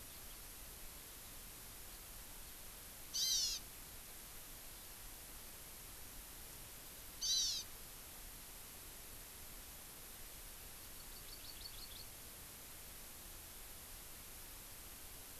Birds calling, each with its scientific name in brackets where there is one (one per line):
Hawaii Amakihi (Chlorodrepanis virens)